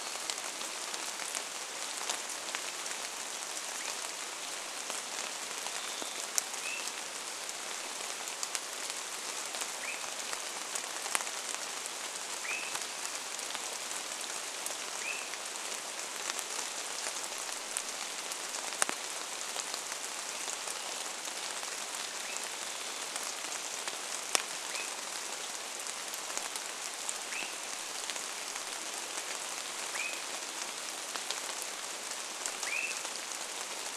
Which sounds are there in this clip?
Varied Thrush song, rain, Swainson's Thrush call